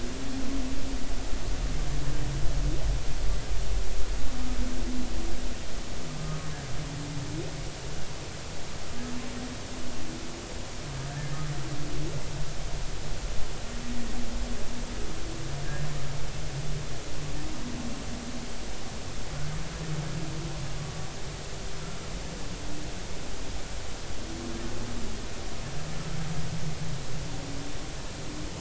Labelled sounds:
6.2	6.5	humpback whale, 1.2 to 1.3 kHz

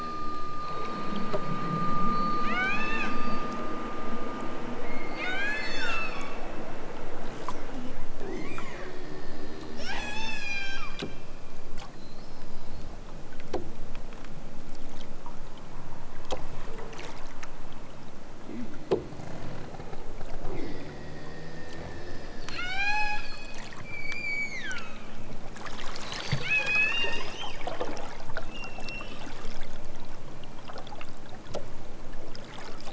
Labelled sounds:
2.1	3.5	killer whale, southern Alaska resident, 0.41 to 8.0 kHz
4.8	6.4	killer whale, southern Alaska resident, 0.74 to 8.0 kHz
9.8	11.2	killer whale, southern Alaska resident, 0.32 to 8.0 kHz
22.4	23.5	killer whale, southern Alaska resident, 0.41 to 8.0 kHz
23.9	25.2	killer whale, southern Alaska resident, 0.60 to 8.0 kHz
26.4	27.3	killer whale, southern Alaska resident, 1.1 to 8.0 kHz

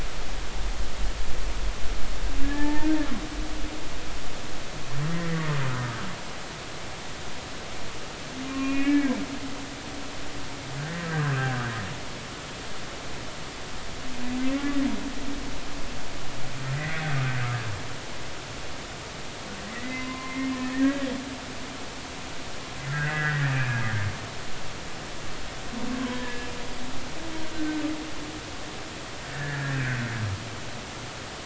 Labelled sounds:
2.4	2.9	humpback whale, 0.83 to 1.9 kHz
5.1	6.0	humpback whale, 1.2 to 2.1 kHz
8.4	9.2	humpback whale, 1.0 to 2.8 kHz
11.0	11.6	humpback whale, 1.4 to 1.8 kHz
16.7	17.1	humpback whale, 1.8 to 2.1 kHz
19.7	21.1	humpback whale, 0.96 to 2.2 kHz
22.9	23.8	humpback whale, 1.3 to 2.6 kHz
26.0	26.5	humpback whale, 0.96 to 3.3 kHz
27.5	27.8	humpback whale, 1.4 to 1.6 kHz
29.3	29.8	humpback whale, 1.6 to 1.9 kHz

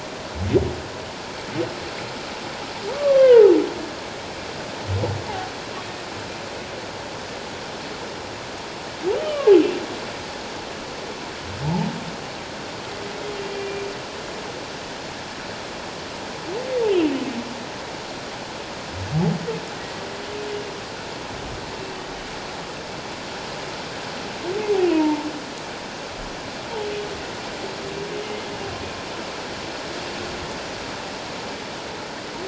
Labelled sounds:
2.9	3.4	humpback whale, 1.0 to 3.2 kHz
9.2	9.5	humpback whale, 2.7 to 3.2 kHz
13.5	13.8	humpback whale, 2.3 to 2.4 kHz
24.9	25.3	humpback whale, 0.84 to 1.0 kHz

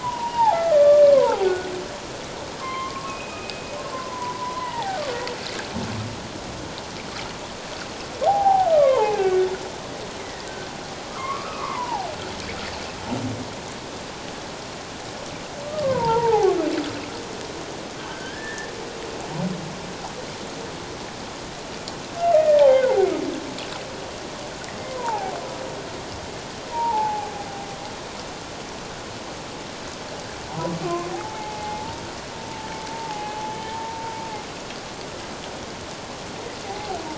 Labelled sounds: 0.0	1.7	humpback whale, 0.78 to 1.6 kHz
2.6	3.6	humpback whale, 0.97 to 3.2 kHz
3.9	5.0	humpback whale, 0.78 to 2.1 kHz
8.3	10.5	humpback whale, 0.78 to 2.6 kHz
11.1	12.1	humpback whale, 0.78 to 2.7 kHz
15.6	16.5	humpback whale, 0.78 to 1.3 kHz
18.0	18.7	humpback whale, 1.5 to 1.9 kHz
22.4	23.0	humpback whale, 0.78 to 1.9 kHz
24.9	25.3	humpback whale, 0.78 to 1.1 kHz
26.7	27.5	humpback whale, 0.78 to 1.0 kHz
30.8	32.0	humpback whale, 0.78 to 2.2 kHz
32.9	34.1	humpback whale, 0.78 to 0.97 kHz
36.7	37.0	humpback whale, 0.78 to 0.88 kHz

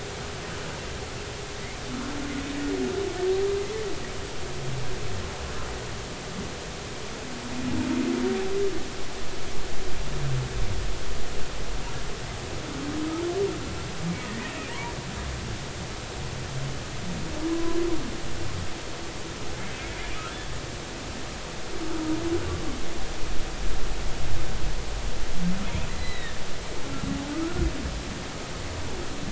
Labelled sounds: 14.7	14.9	humpback whale, 0.86 to 1.2 kHz
17.5	17.8	humpback whale, 0.96 to 1.1 kHz
25.9	26.4	humpback whale, 1.7 to 4.1 kHz
27.3	27.7	humpback whale, 1.2 to 1.5 kHz

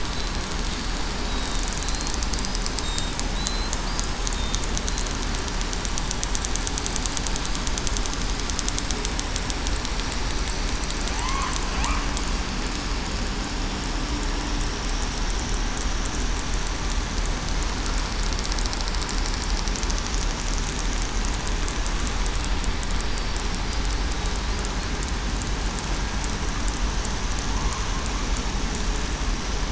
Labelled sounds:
1.3	2.1	killer whale, southern resident, 3.7 to 4.3 kHz
3.4	3.7	killer whale, southern resident, 3.8 to 4.2 kHz
11.1	11.5	killer whale, southern resident, 0.87 to 1.1 kHz

